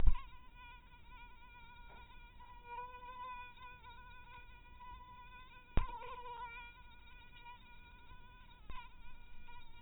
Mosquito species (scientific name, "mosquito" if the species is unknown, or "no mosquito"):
mosquito